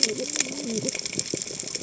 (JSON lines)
{"label": "biophony, cascading saw", "recorder": "HydroMoth"}